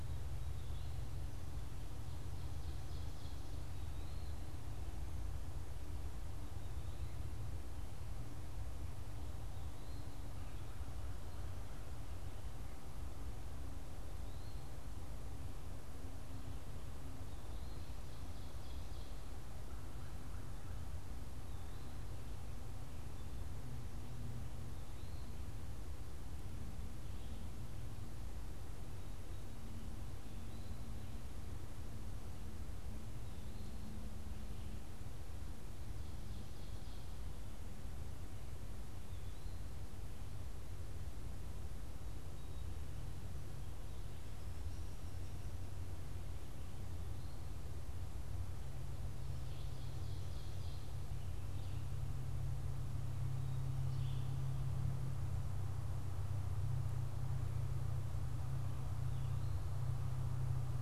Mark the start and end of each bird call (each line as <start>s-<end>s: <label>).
0.0s-18.1s: Eastern Wood-Pewee (Contopus virens)
1.5s-3.6s: Ovenbird (Seiurus aurocapilla)
17.7s-19.7s: Ovenbird (Seiurus aurocapilla)
19.4s-20.8s: American Crow (Corvus brachyrhynchos)
49.2s-51.1s: Ovenbird (Seiurus aurocapilla)
53.8s-54.4s: Red-eyed Vireo (Vireo olivaceus)